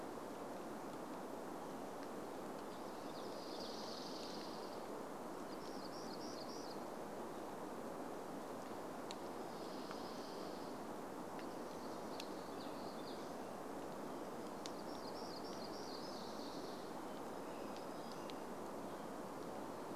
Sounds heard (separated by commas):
Hammond's Flycatcher call, Dark-eyed Junco song, warbler song, American Robin song